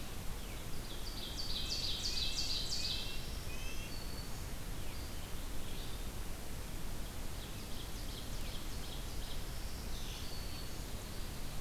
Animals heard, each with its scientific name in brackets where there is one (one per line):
Ovenbird (Seiurus aurocapilla)
Black-throated Green Warbler (Setophaga virens)
Eastern Wood-Pewee (Contopus virens)
Red-breasted Nuthatch (Sitta canadensis)